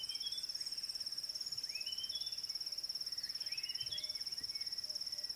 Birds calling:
Red-backed Scrub-Robin (Cercotrichas leucophrys)

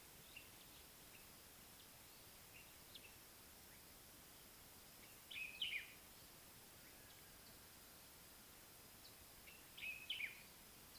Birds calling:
Common Bulbul (Pycnonotus barbatus)

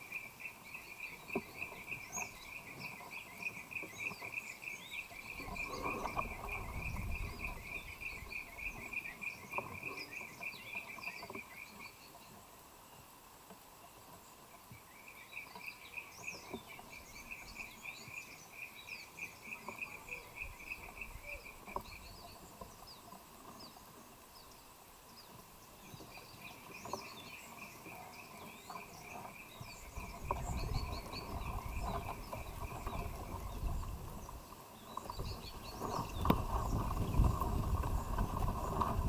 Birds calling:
Black-throated Apalis (Apalis jacksoni)

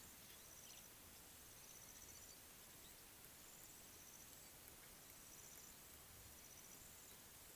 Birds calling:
Quailfinch (Ortygospiza atricollis)

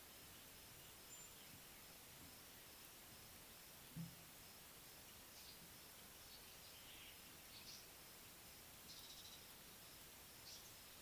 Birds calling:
Mariqua Sunbird (Cinnyris mariquensis)

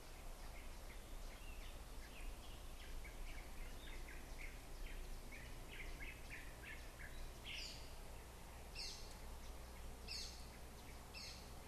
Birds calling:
Gray-throated Barbet (Gymnobucco bonapartei)

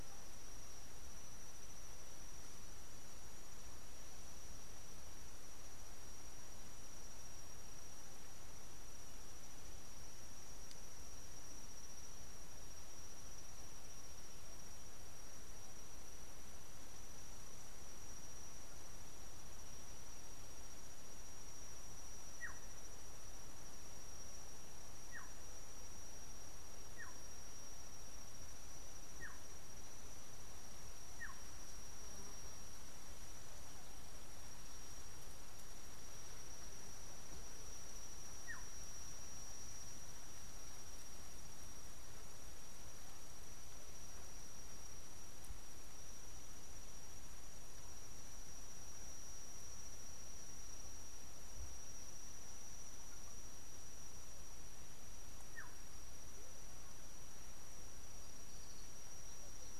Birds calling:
Black-tailed Oriole (Oriolus percivali)

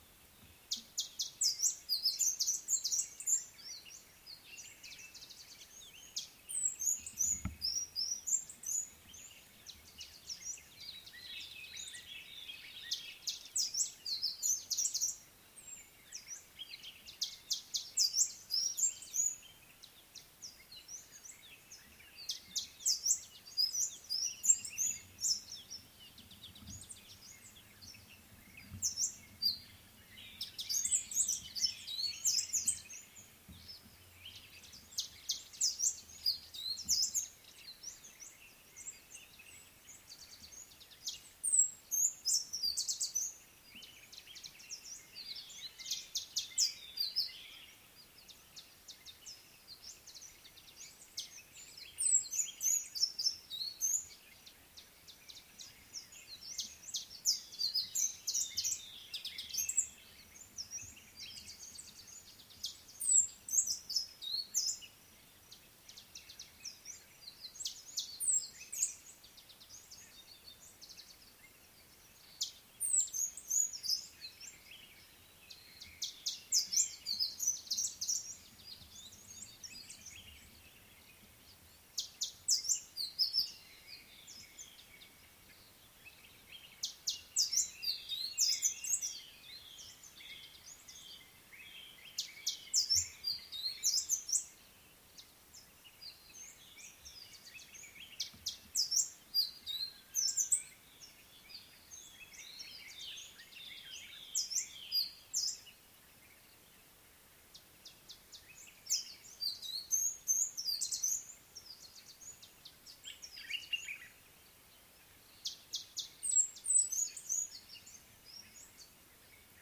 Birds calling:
Amethyst Sunbird (Chalcomitra amethystina), Common Bulbul (Pycnonotus barbatus), White-browed Robin-Chat (Cossypha heuglini)

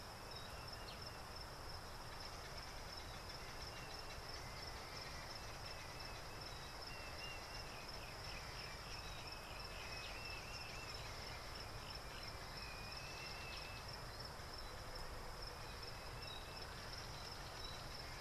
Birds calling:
Helmeted Guineafowl (Numida meleagris), Dideric Cuckoo (Chrysococcyx caprius)

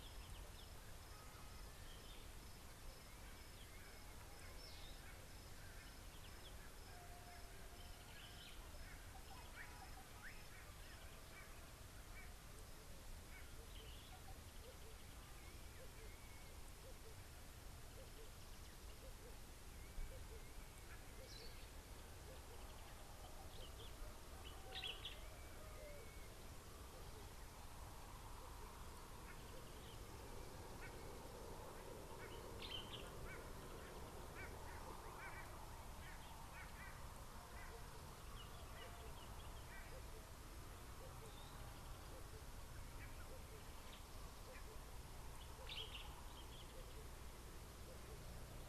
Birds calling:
Common Bulbul (Pycnonotus barbatus), Red-eyed Dove (Streptopelia semitorquata), Meyer's Parrot (Poicephalus meyeri), Southern Fiscal (Lanius collaris)

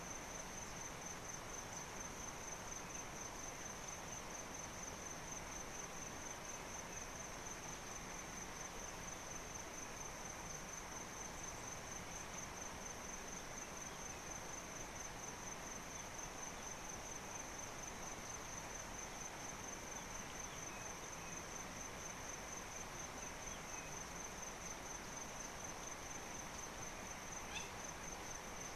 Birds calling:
Hamerkop (Scopus umbretta)

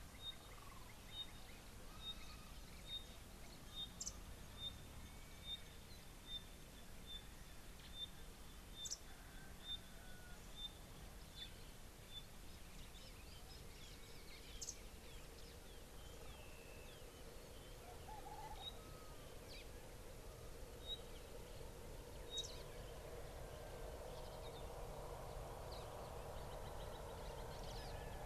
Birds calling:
Pygmy Batis (Batis perkeo), Red-backed Scrub-Robin (Cercotrichas leucophrys)

